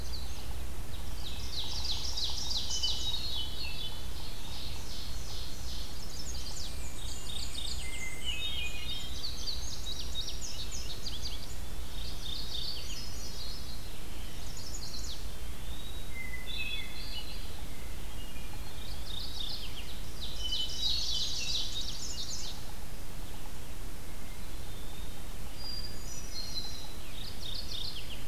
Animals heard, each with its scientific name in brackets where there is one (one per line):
Yellow-bellied Sapsucker (Sphyrapicus varius)
Black-and-white Warbler (Mniotilta varia)
Mourning Warbler (Geothlypis philadelphia)
Ovenbird (Seiurus aurocapilla)
Red-eyed Vireo (Vireo olivaceus)
Indigo Bunting (Passerina cyanea)
Eastern Wood-Pewee (Contopus virens)
Hermit Thrush (Catharus guttatus)
Chestnut-sided Warbler (Setophaga pensylvanica)